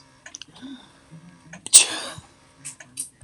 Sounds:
Sneeze